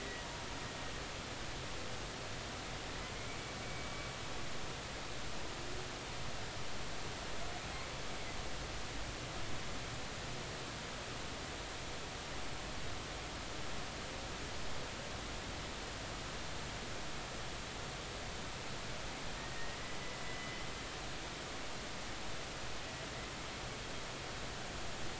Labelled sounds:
3.6	3.9	humpback whale, 2.2 to 2.3 kHz
19.5	19.8	humpback whale, 1.8 to 1.9 kHz
20.2	20.6	humpback whale, 1.95 to 2.05 kHz

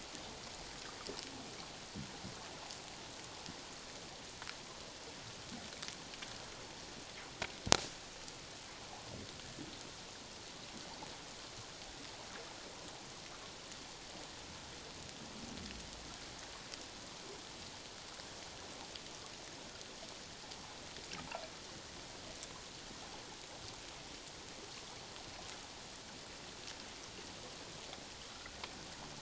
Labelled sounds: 28.3	28.6	water noise, 1.3 to 1.6 kHz

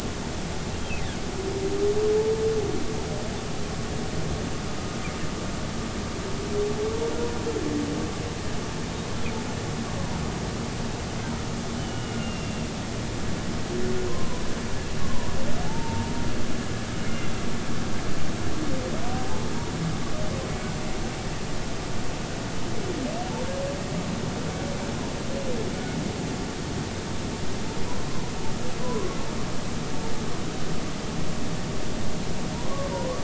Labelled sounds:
11.8	12.7	humpback whale, 2.7 to 3.1 kHz
14.1	14.4	humpback whale, 0.93 to 1.1 kHz
15.7	16.3	humpback whale, 0.83 to 1.2 kHz
17.0	17.3	humpback whale, 2.0 to 2.2 kHz
28.8	29.2	humpback whale, 0.93 to 1.2 kHz
32.5	33.2	humpback whale, 0.90 to 1.2 kHz

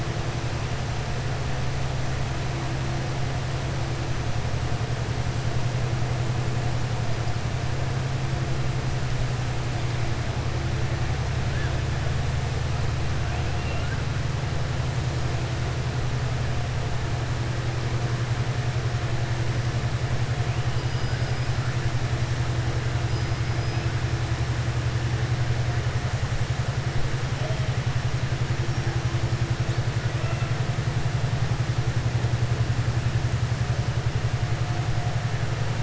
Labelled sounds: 13.5	14.0	killer whale, southern resident, 1.4 to 2.9 kHz

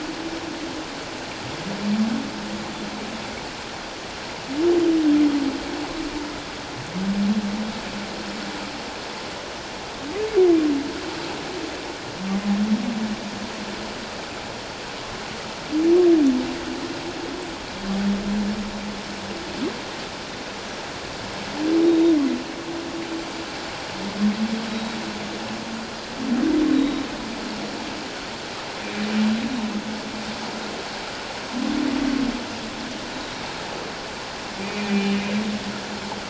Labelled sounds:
21.9	22.2	Pacific white-sided dolphin, 3.6 to 3.8 kHz
24.7	25.0	Pacific white-sided dolphin, 3.8 to 3.9 kHz
26.7	27.0	Pacific white-sided dolphin, 3.7 to 3.9 kHz
33.1	33.4	Pacific white-sided dolphin, 3.7 to 4.0 kHz
34.6	35.2	humpback whale, 2.2 to 2.5 kHz

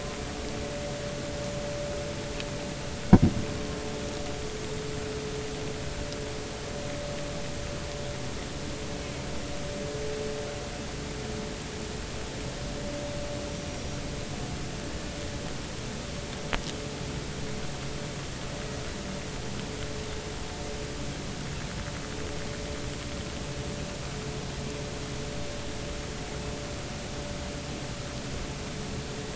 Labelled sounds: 13.5	14.0	small unidentified odontocete, 5.6 to 5.8 kHz

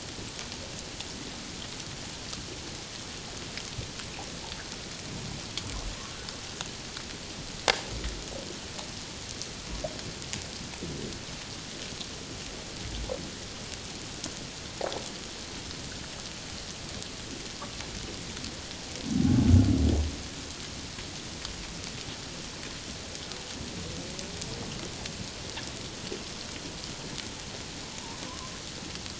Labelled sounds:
27.9	28.5	humpback whale, 0.84 to 1.2 kHz

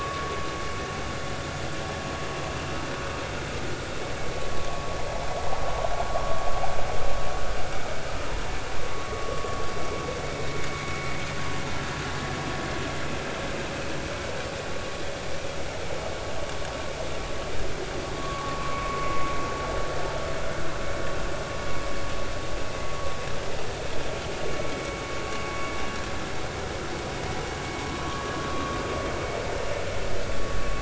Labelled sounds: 8.9	9.3	vessel noise, 1.1 to 1.2 kHz
18.2	18.9	vessel noise, 0.99 to 1.2 kHz
24.7	25.0	vessel noise, 2.2 to 2.3 kHz
28.0	28.4	vessel noise, 0.99 to 1.2 kHz

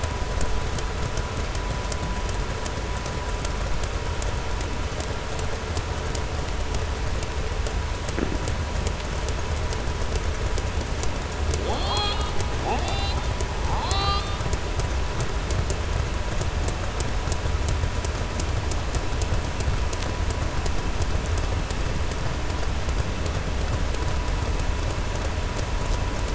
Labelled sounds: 13.6	14.4	killer whale, southern resident, 0.78 to 7.8 kHz

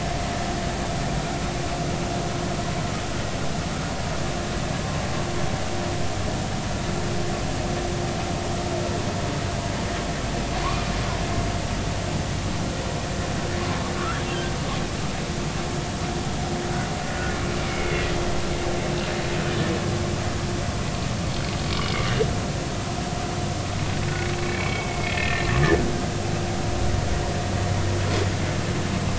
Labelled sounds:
10.6	10.9	humpback whale, 0.93 to 2.5 kHz
17.1	18.0	humpback whale, 1.3 to 2.4 kHz
24.4	25.5	humpback whale, 1.7 to 2.7 kHz

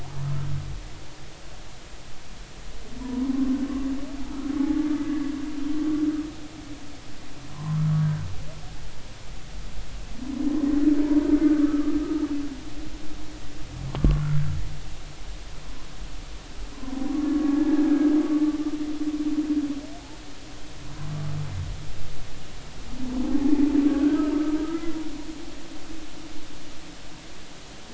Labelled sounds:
0.0	0.3	humpback whale, 0.80 to 1.1 kHz
3.0	3.5	humpback whale, 0.93 to 1.2 kHz
5.0	5.3	humpback whale, 1.6 to 1.8 kHz
7.5	8.3	humpback whale, 0.90 to 1.7 kHz
11.4	12.0	humpback whale, 1.1 to 1.3 kHz
13.9	14.4	humpback whale, 0.96 to 1.5 kHz
16.7	18.2	humpback whale, 0.93 to 1.8 kHz
23.9	24.2	humpback whale, 1.4 to 1.7 kHz
24.6	25.0	humpback whale, 1.2 to 2.1 kHz

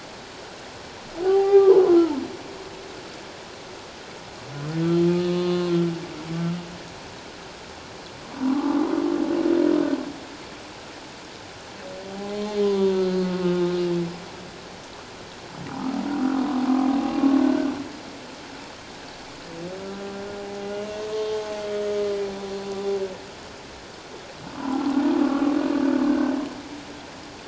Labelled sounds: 1.2	2.2	humpback whale, 0.78 to 2.0 kHz
5.1	5.7	humpback whale, 1.0 to 4.1 kHz
12.1	13.7	humpback whale, 0.78 to 4.3 kHz
17.4	17.7	humpback whale, 1.4 to 1.6 kHz
21.1	21.4	humpback whale, 3.2 to 3.3 kHz
24.5	24.8	humpback whale, 0.78 to 1.2 kHz
26.1	26.3	humpback whale, 1.5 to 1.6 kHz

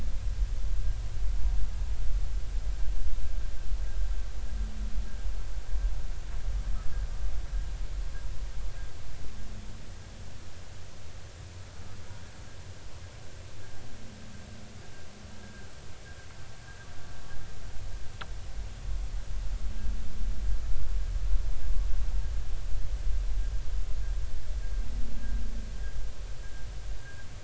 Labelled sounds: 15.4	15.7	humpback whale, 1.5 to 1.7 kHz

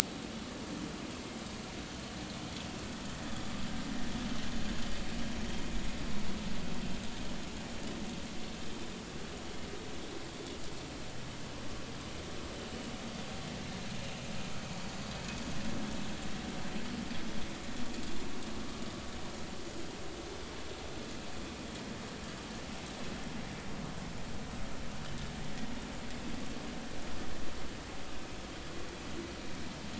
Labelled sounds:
0.3	0.6	vessel noise, 1.1 to 1.3 kHz

